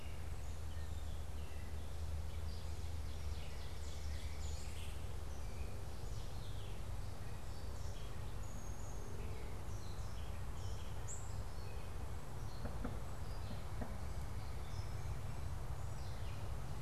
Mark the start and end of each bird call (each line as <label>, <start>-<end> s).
Gray Catbird (Dumetella carolinensis), 0.0-16.6 s
Ovenbird (Seiurus aurocapilla), 2.7-5.0 s
unidentified bird, 11.0-11.5 s